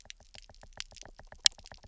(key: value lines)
label: biophony, knock
recorder: SoundTrap 300